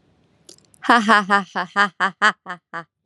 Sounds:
Laughter